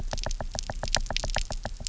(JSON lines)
{"label": "biophony, knock", "recorder": "SoundTrap 300"}